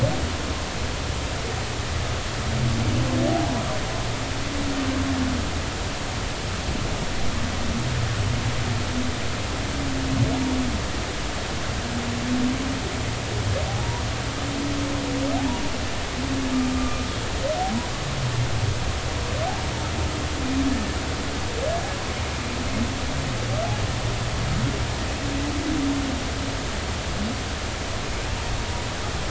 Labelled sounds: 15.4	15.6	humpback whale, 0.80 to 1.0 kHz
16.7	17.0	humpback whale, 1.1 to 1.2 kHz

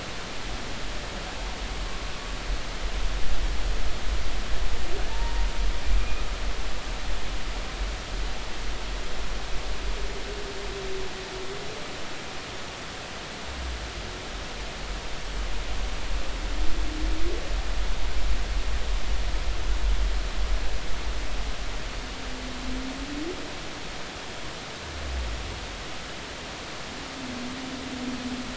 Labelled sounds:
5.1	5.5	humpback whale, 0.86 to 0.99 kHz

